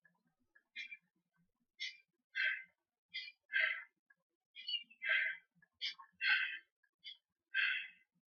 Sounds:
Sniff